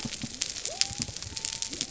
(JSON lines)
{"label": "biophony", "recorder": "SoundTrap 300"}